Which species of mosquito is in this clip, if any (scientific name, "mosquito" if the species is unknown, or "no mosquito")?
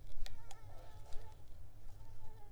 Mansonia africanus